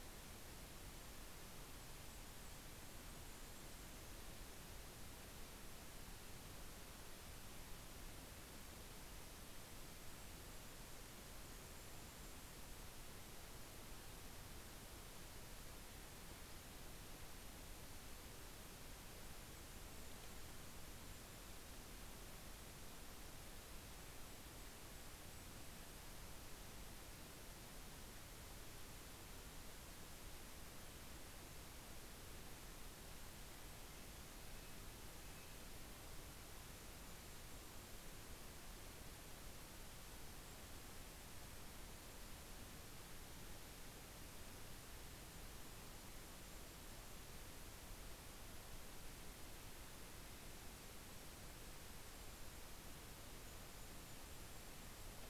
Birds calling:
Golden-crowned Kinglet (Regulus satrapa), Red-breasted Nuthatch (Sitta canadensis)

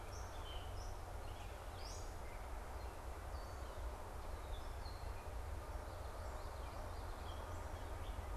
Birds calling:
Gray Catbird (Dumetella carolinensis), Common Yellowthroat (Geothlypis trichas)

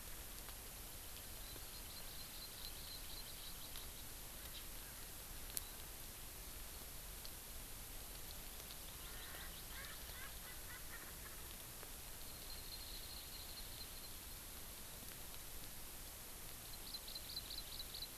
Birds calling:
Hawaii Amakihi (Chlorodrepanis virens), Erckel's Francolin (Pternistis erckelii)

